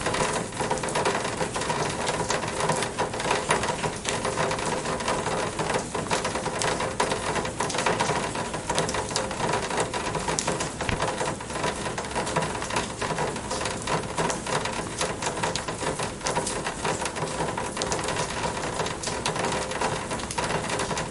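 Heavy raindrops fall steadily on a metal surface. 0.0 - 21.1
Heavy raindrops splash steadily on the ground in the background. 0.0 - 21.1

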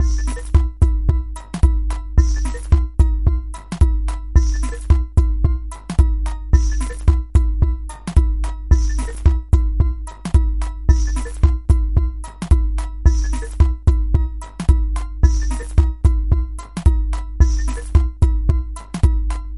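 Continuous synthetic musical beat. 0.0 - 19.6

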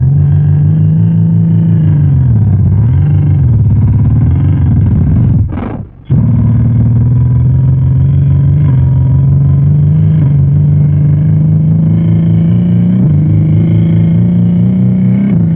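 Low-pitched engine sound of a car or motorbike. 0.0 - 5.9
A car engine sounds with a lower pitch. 6.1 - 15.6

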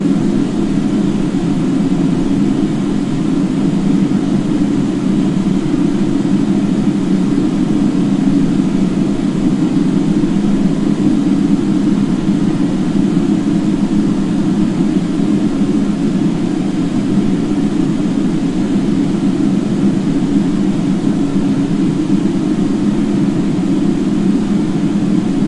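The wind blows loudly. 0.0 - 25.5

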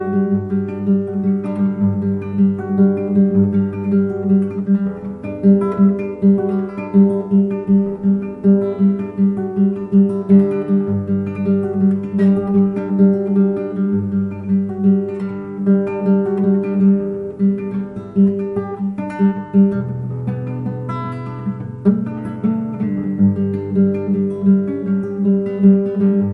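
A guitar produces a continuous, low-pitched melodic sound. 0.0 - 26.3

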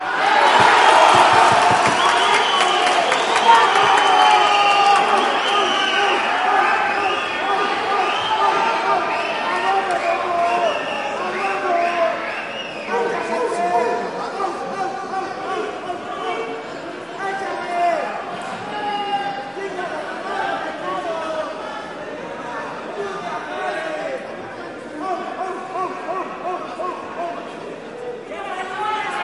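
An indoor crowd is continuously making noise with frequent loud applause and occasional shouts. 0.0 - 29.2

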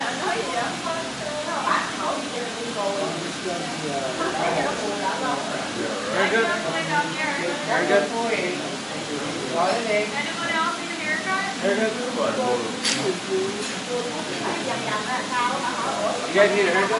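Constant and even white noise. 0.0 - 17.0
Multiple people are talking over each other. 0.0 - 17.0
A loud metallic cutting sound. 12.8 - 14.1

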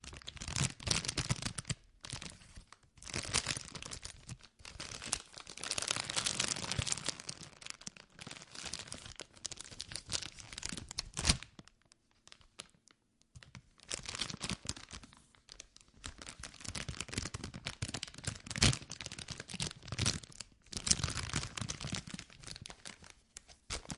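Continuous crackling of a potato chip bag. 0.0 - 11.8
The crackling of a bag of potato chips. 12.5 - 18.5
A bag of potato chips is being opened. 18.6 - 22.3
The crackling of a bag of potato chips. 22.3 - 24.0

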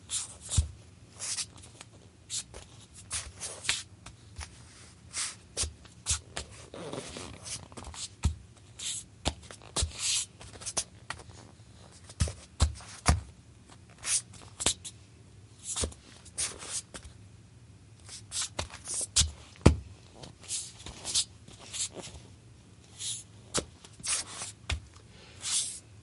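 Footsteps on a wooden floor. 0.0 - 26.0
Very quiet white noise in the background. 0.0 - 26.0

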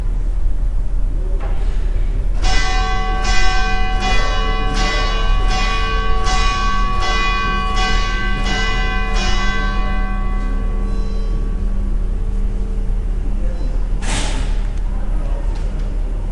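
Church bells ringing in the distance. 1.5 - 9.8

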